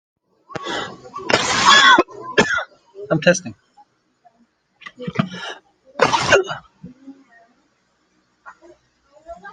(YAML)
expert_labels:
- quality: poor
  cough_type: unknown
  dyspnea: false
  wheezing: false
  stridor: false
  choking: false
  congestion: false
  nothing: true
  diagnosis: healthy cough
  severity: pseudocough/healthy cough